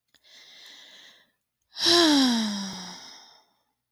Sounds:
Sigh